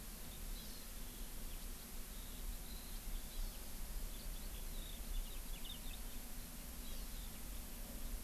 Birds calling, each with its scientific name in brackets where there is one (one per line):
Hawaii Amakihi (Chlorodrepanis virens)
Eurasian Skylark (Alauda arvensis)